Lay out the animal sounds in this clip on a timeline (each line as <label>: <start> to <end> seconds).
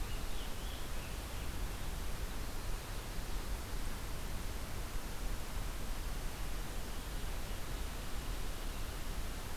Scarlet Tanager (Piranga olivacea): 0.0 to 1.3 seconds